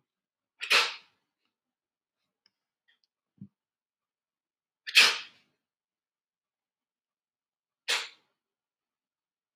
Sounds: Sneeze